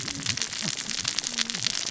{"label": "biophony, cascading saw", "recorder": "SoundTrap 600 or HydroMoth"}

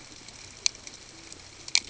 {"label": "ambient", "recorder": "HydroMoth"}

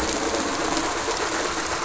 {"label": "anthrophony, boat engine", "recorder": "SoundTrap 500"}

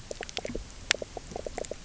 {"label": "biophony, knock croak", "recorder": "SoundTrap 300"}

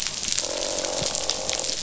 {"label": "biophony, croak", "recorder": "SoundTrap 500"}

